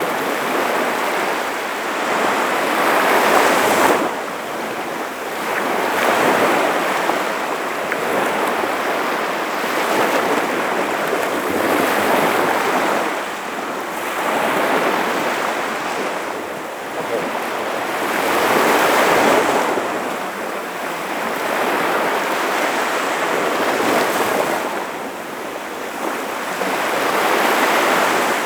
Is there water?
yes